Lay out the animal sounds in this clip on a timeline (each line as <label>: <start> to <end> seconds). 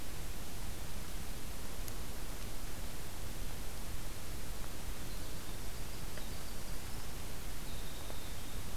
Winter Wren (Troglodytes hiemalis): 4.7 to 8.8 seconds